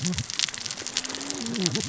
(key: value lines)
label: biophony, cascading saw
recorder: SoundTrap 600 or HydroMoth